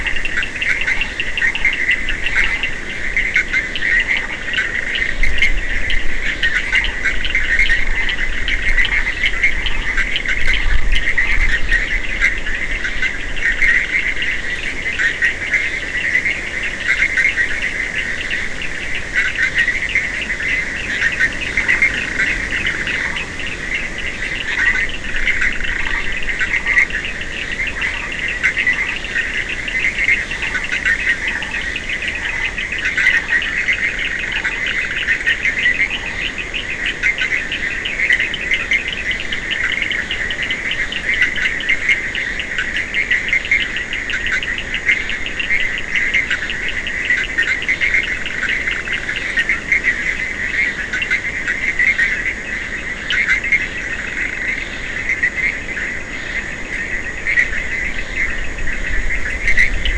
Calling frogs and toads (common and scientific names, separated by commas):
Burmeister's tree frog (Boana prasina), Bischoff's tree frog (Boana bischoffi), Scinax perereca, Cochran's lime tree frog (Sphaenorhynchus surdus), two-colored oval frog (Elachistocleis bicolor)